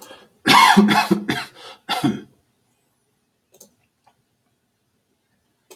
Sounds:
Cough